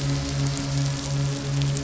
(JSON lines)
{"label": "anthrophony, boat engine", "recorder": "SoundTrap 500"}